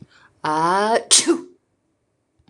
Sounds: Sneeze